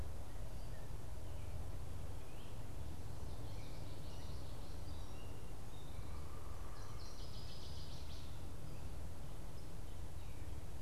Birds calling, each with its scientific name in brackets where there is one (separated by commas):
Northern Waterthrush (Parkesia noveboracensis), Common Yellowthroat (Geothlypis trichas), Gray Catbird (Dumetella carolinensis)